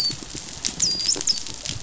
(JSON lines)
{"label": "biophony, dolphin", "recorder": "SoundTrap 500"}